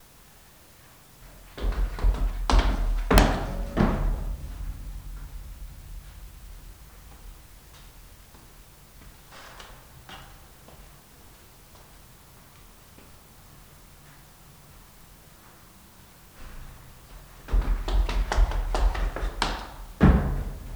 Are cars passing by?
no